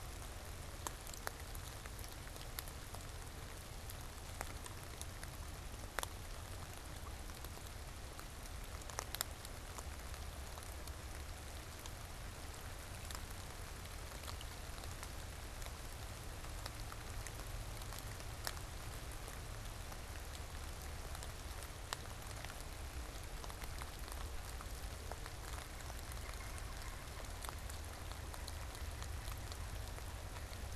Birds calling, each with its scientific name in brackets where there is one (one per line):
Pileated Woodpecker (Dryocopus pileatus)